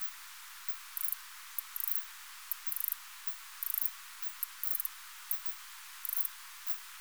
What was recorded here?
Ancistrura nigrovittata, an orthopteran